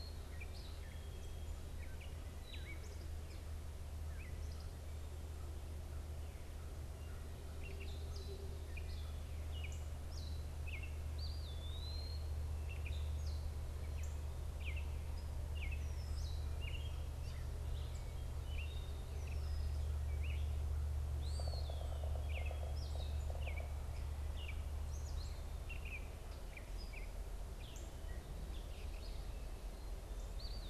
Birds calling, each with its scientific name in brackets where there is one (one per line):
Gray Catbird (Dumetella carolinensis)
Red-winged Blackbird (Agelaius phoeniceus)
Eastern Wood-Pewee (Contopus virens)
Yellow-bellied Sapsucker (Sphyrapicus varius)